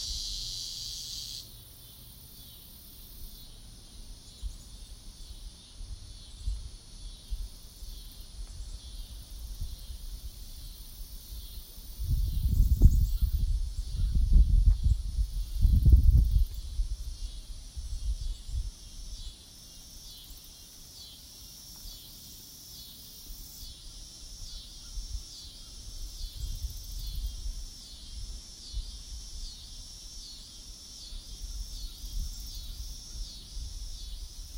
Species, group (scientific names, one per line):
Neotibicen pruinosus
Cicadidae